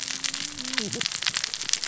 {"label": "biophony, cascading saw", "recorder": "SoundTrap 600 or HydroMoth"}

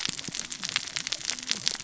{"label": "biophony, cascading saw", "recorder": "SoundTrap 600 or HydroMoth"}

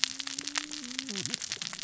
{"label": "biophony, cascading saw", "recorder": "SoundTrap 600 or HydroMoth"}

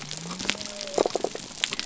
{"label": "biophony", "recorder": "SoundTrap 300"}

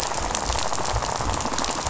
{"label": "biophony, rattle", "recorder": "SoundTrap 500"}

